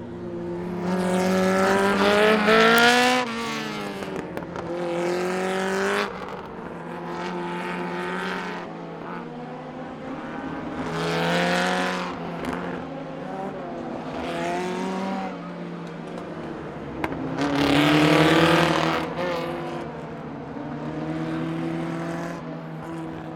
Does this sound occur in nature?
no